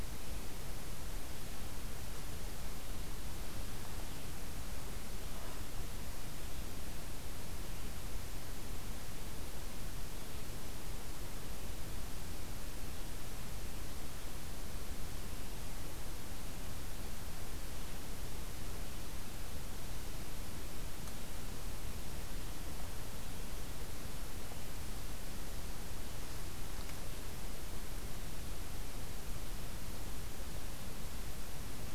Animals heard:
forest ambience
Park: Katahdin Woods and Waters National Monument